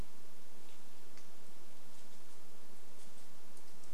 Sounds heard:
forest ambience